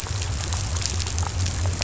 {"label": "biophony", "recorder": "SoundTrap 500"}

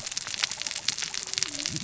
{"label": "biophony, cascading saw", "recorder": "SoundTrap 600 or HydroMoth"}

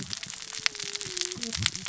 {"label": "biophony, cascading saw", "recorder": "SoundTrap 600 or HydroMoth"}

